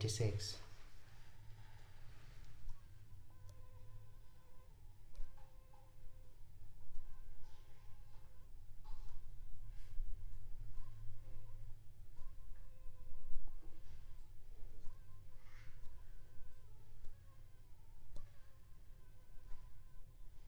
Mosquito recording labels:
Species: Aedes aegypti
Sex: female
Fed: unfed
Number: one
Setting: cup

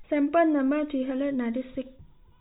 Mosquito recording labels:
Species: no mosquito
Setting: cup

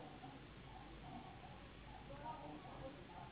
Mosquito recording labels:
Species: Anopheles gambiae s.s.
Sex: female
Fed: unfed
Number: one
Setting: insect culture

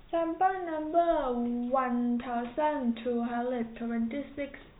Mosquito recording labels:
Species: no mosquito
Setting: cup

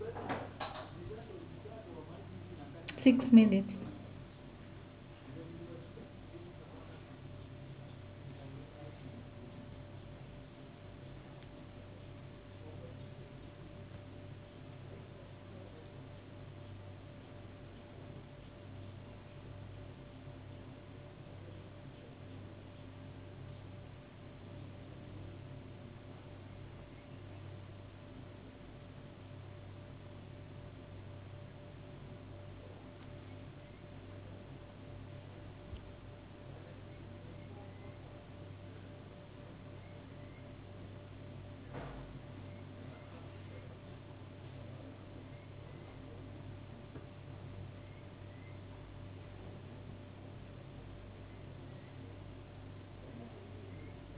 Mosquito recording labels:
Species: no mosquito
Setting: insect culture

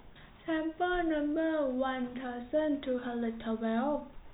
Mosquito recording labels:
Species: no mosquito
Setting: cup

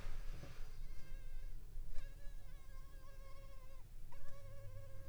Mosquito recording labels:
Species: Culex pipiens complex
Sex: female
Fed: unfed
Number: one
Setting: cup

